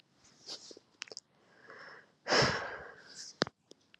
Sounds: Sigh